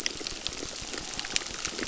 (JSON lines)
{"label": "biophony, crackle", "recorder": "SoundTrap 600"}